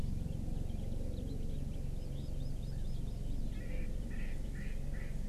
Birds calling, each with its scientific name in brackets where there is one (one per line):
Hawaii Amakihi (Chlorodrepanis virens)
Erckel's Francolin (Pternistis erckelii)
House Finch (Haemorhous mexicanus)